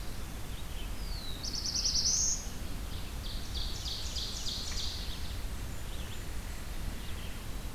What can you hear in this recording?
Black-throated Blue Warbler, Red-eyed Vireo, Ovenbird, Blackburnian Warbler